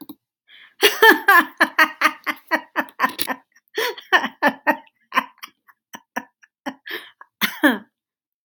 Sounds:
Laughter